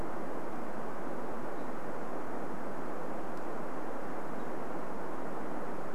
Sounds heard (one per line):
unidentified bird chip note